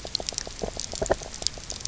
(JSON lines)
{"label": "biophony, knock croak", "recorder": "SoundTrap 300"}